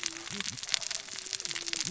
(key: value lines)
label: biophony, cascading saw
recorder: SoundTrap 600 or HydroMoth